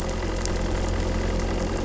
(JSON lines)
{"label": "anthrophony, boat engine", "recorder": "SoundTrap 300"}